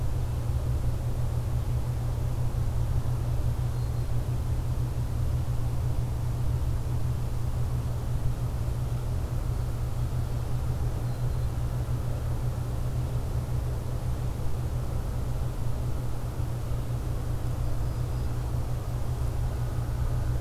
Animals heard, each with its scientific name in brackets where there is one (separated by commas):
Golden-crowned Kinglet (Regulus satrapa), Black-throated Green Warbler (Setophaga virens)